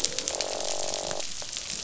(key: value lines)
label: biophony, croak
recorder: SoundTrap 500